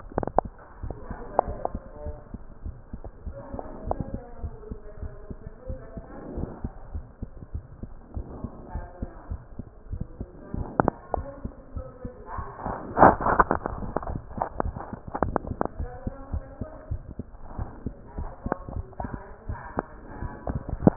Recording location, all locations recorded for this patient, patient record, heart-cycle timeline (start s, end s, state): mitral valve (MV)
aortic valve (AV)+pulmonary valve (PV)+tricuspid valve (TV)+mitral valve (MV)
#Age: Child
#Sex: Female
#Height: 102.0 cm
#Weight: 15.7 kg
#Pregnancy status: False
#Murmur: Present
#Murmur locations: aortic valve (AV)+mitral valve (MV)
#Most audible location: mitral valve (MV)
#Systolic murmur timing: Early-systolic
#Systolic murmur shape: Plateau
#Systolic murmur grading: I/VI
#Systolic murmur pitch: Low
#Systolic murmur quality: Blowing
#Diastolic murmur timing: nan
#Diastolic murmur shape: nan
#Diastolic murmur grading: nan
#Diastolic murmur pitch: nan
#Diastolic murmur quality: nan
#Outcome: Normal
#Campaign: 2015 screening campaign
0.00	1.70	unannotated
1.70	1.82	S2
1.82	2.02	diastole
2.02	2.16	S1
2.16	2.32	systole
2.32	2.42	S2
2.42	2.62	diastole
2.62	2.76	S1
2.76	2.90	systole
2.90	3.00	S2
3.00	3.24	diastole
3.24	3.34	S1
3.34	3.50	systole
3.50	3.60	S2
3.60	3.84	diastole
3.84	3.98	S1
3.98	4.10	systole
4.10	4.22	S2
4.22	4.40	diastole
4.40	4.54	S1
4.54	4.68	systole
4.68	4.78	S2
4.78	5.00	diastole
5.00	5.12	S1
5.12	5.28	systole
5.28	5.40	S2
5.40	5.66	diastole
5.66	5.80	S1
5.80	5.96	systole
5.96	6.10	S2
6.10	6.34	diastole
6.34	6.50	S1
6.50	6.62	systole
6.62	6.72	S2
6.72	6.92	diastole
6.92	7.06	S1
7.06	7.19	systole
7.19	7.30	S2
7.30	7.52	diastole
7.52	7.64	S1
7.64	7.80	systole
7.80	7.90	S2
7.90	8.14	diastole
8.14	8.24	S1
8.24	8.38	systole
8.38	8.50	S2
8.50	8.72	diastole
8.72	8.88	S1
8.88	9.00	systole
9.00	9.10	S2
9.10	9.28	diastole
9.28	9.42	S1
9.42	9.56	systole
9.56	9.66	S2
9.66	9.88	diastole
9.88	10.01	S1
10.01	10.18	systole
10.18	10.28	S2
10.28	20.96	unannotated